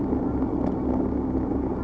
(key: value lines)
label: ambient
recorder: HydroMoth